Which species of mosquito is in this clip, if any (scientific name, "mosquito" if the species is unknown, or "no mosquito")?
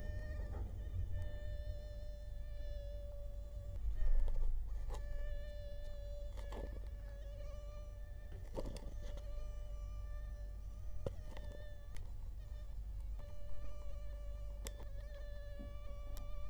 Culex quinquefasciatus